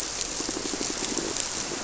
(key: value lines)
label: biophony, squirrelfish (Holocentrus)
recorder: SoundTrap 300